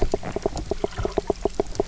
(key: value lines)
label: biophony, knock croak
recorder: SoundTrap 300